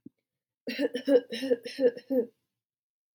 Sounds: Cough